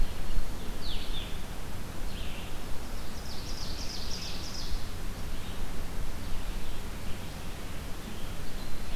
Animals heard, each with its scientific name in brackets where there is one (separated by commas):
Blue-headed Vireo (Vireo solitarius), Red-eyed Vireo (Vireo olivaceus), Ovenbird (Seiurus aurocapilla)